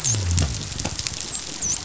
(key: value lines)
label: biophony, dolphin
recorder: SoundTrap 500